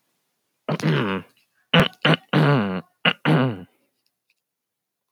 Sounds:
Throat clearing